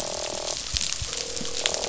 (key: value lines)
label: biophony, croak
recorder: SoundTrap 500